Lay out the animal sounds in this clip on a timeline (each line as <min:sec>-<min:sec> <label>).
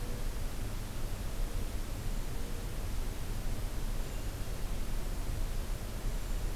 0:01.8-0:02.4 Hermit Thrush (Catharus guttatus)
0:03.9-0:04.4 Hermit Thrush (Catharus guttatus)
0:06.0-0:06.6 Hermit Thrush (Catharus guttatus)